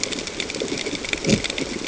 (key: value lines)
label: ambient
recorder: HydroMoth